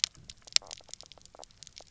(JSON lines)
{"label": "biophony, knock croak", "recorder": "SoundTrap 300"}